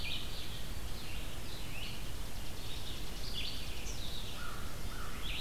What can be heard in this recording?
Red-eyed Vireo, Chipping Sparrow, Eastern Kingbird, American Crow